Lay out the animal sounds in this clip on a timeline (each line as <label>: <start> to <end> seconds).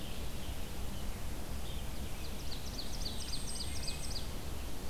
American Robin (Turdus migratorius): 0.0 to 0.8 seconds
Red-eyed Vireo (Vireo olivaceus): 0.0 to 4.9 seconds
Ovenbird (Seiurus aurocapilla): 1.8 to 4.4 seconds
Blackpoll Warbler (Setophaga striata): 2.7 to 4.3 seconds
Wood Thrush (Hylocichla mustelina): 3.5 to 4.2 seconds